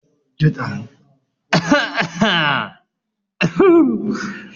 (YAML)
expert_labels:
- quality: ok
  cough_type: unknown
  dyspnea: false
  wheezing: false
  stridor: false
  choking: false
  congestion: false
  nothing: true
  diagnosis: healthy cough
  severity: pseudocough/healthy cough